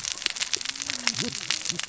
{"label": "biophony, cascading saw", "recorder": "SoundTrap 600 or HydroMoth"}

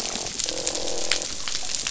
{"label": "biophony, croak", "recorder": "SoundTrap 500"}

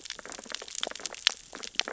{"label": "biophony, sea urchins (Echinidae)", "recorder": "SoundTrap 600 or HydroMoth"}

